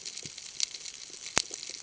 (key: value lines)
label: ambient
recorder: HydroMoth